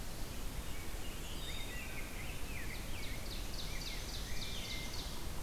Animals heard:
Black-and-white Warbler (Mniotilta varia), Rose-breasted Grosbeak (Pheucticus ludovicianus), Wood Thrush (Hylocichla mustelina), Ovenbird (Seiurus aurocapilla)

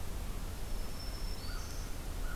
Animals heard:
Black-throated Green Warbler (Setophaga virens), American Crow (Corvus brachyrhynchos)

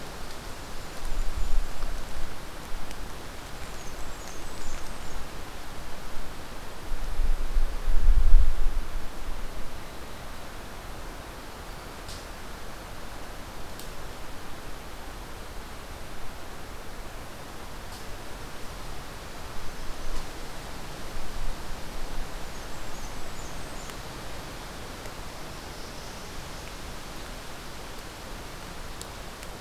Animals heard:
Blackburnian Warbler (Setophaga fusca), Golden-crowned Kinglet (Regulus satrapa), Northern Parula (Setophaga americana)

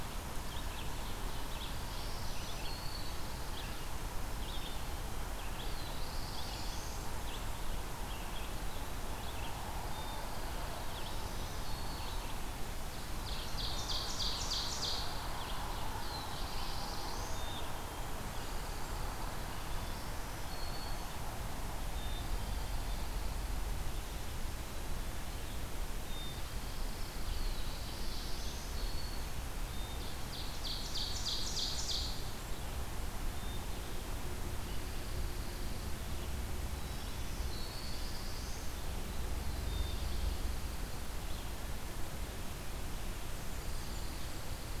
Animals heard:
Pine Warbler (Setophaga pinus), Red-eyed Vireo (Vireo olivaceus), Blackburnian Warbler (Setophaga fusca), Black-throated Green Warbler (Setophaga virens), Black-throated Blue Warbler (Setophaga caerulescens), Ovenbird (Seiurus aurocapilla), Black-capped Chickadee (Poecile atricapillus)

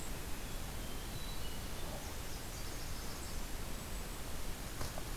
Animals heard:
Yellow-rumped Warbler (Setophaga coronata), Hermit Thrush (Catharus guttatus), Golden-crowned Kinglet (Regulus satrapa)

